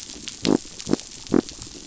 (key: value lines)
label: biophony
recorder: SoundTrap 500